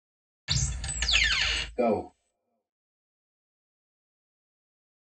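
First, a wooden cupboard opens. Then someone says "Go".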